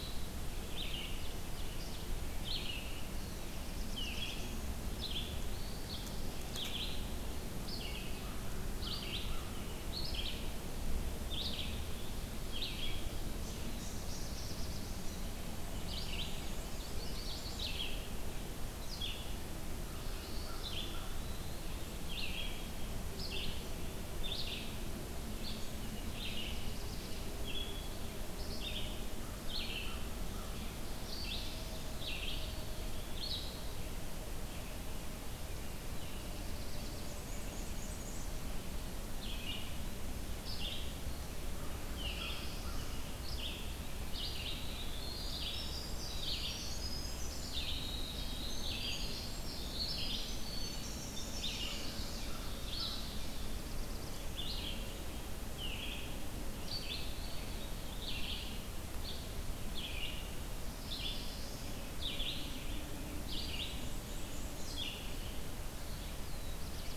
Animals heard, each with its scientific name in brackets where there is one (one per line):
Red-eyed Vireo (Vireo olivaceus)
Winter Wren (Troglodytes hiemalis)
Black-and-white Warbler (Mniotilta varia)
Eastern Wood-Pewee (Contopus virens)
Black-throated Blue Warbler (Setophaga caerulescens)
American Crow (Corvus brachyrhynchos)
Ovenbird (Seiurus aurocapilla)
Chestnut-sided Warbler (Setophaga pensylvanica)